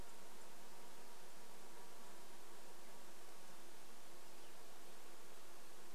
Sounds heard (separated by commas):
insect buzz, unidentified sound